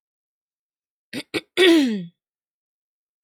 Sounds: Throat clearing